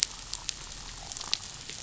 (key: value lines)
label: biophony
recorder: SoundTrap 500